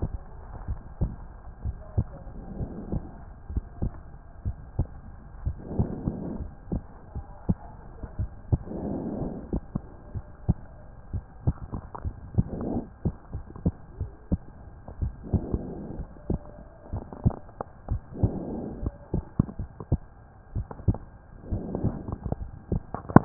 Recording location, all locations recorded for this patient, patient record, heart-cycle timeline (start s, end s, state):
pulmonary valve (PV)
aortic valve (AV)+pulmonary valve (PV)+tricuspid valve (TV)+mitral valve (MV)
#Age: Child
#Sex: Female
#Height: 111.0 cm
#Weight: 20.4 kg
#Pregnancy status: False
#Murmur: Absent
#Murmur locations: nan
#Most audible location: nan
#Systolic murmur timing: nan
#Systolic murmur shape: nan
#Systolic murmur grading: nan
#Systolic murmur pitch: nan
#Systolic murmur quality: nan
#Diastolic murmur timing: nan
#Diastolic murmur shape: nan
#Diastolic murmur grading: nan
#Diastolic murmur pitch: nan
#Diastolic murmur quality: nan
#Outcome: Normal
#Campaign: 2015 screening campaign
0.00	0.66	unannotated
0.66	0.82	S1
0.82	1.00	systole
1.00	1.14	S2
1.14	1.64	diastole
1.64	1.78	S1
1.78	1.96	systole
1.96	2.08	S2
2.08	2.56	diastole
2.56	2.70	S1
2.70	2.90	systole
2.90	3.04	S2
3.04	3.52	diastole
3.52	3.66	S1
3.66	3.81	systole
3.81	3.94	S2
3.94	4.44	diastole
4.44	4.56	S1
4.56	4.76	systole
4.76	4.90	S2
4.90	5.42	diastole
5.42	5.56	S1
5.56	5.76	systole
5.76	5.92	S2
5.92	6.38	diastole
6.38	6.50	S1
6.50	6.70	systole
6.70	6.84	S2
6.84	7.12	diastole
7.12	7.24	S1
7.24	7.47	systole
7.47	7.58	S2
7.58	8.18	diastole
8.18	8.30	S1
8.30	8.48	systole
8.48	8.64	S2
8.64	9.18	diastole
9.18	9.34	S1
9.34	9.52	systole
9.52	9.64	S2
9.64	10.12	diastole
10.12	10.24	S1
10.24	10.46	systole
10.46	10.60	S2
10.60	11.12	diastole
11.12	11.24	S1
11.24	11.46	systole
11.46	11.56	S2
11.56	12.04	diastole
12.04	12.14	S1
12.14	12.36	systole
12.36	12.50	S2
12.50	13.04	unannotated
13.04	13.16	S2
13.16	13.32	diastole
13.32	13.44	S1
13.44	13.64	systole
13.64	13.72	S2
13.72	13.98	diastole
13.98	14.08	S1
14.08	14.29	systole
14.29	14.38	S2
14.38	15.00	diastole
15.00	15.14	S1
15.14	15.32	systole
15.32	15.46	S2
15.46	15.96	diastole
15.96	16.06	S1
16.06	16.26	systole
16.26	16.42	S2
16.42	16.92	diastole
16.92	17.06	S1
17.06	17.24	systole
17.24	17.40	S2
17.40	17.88	diastole
17.88	18.02	S1
18.02	18.18	systole
18.18	18.34	S2
18.34	18.81	diastole
18.81	18.92	S1
18.92	23.25	unannotated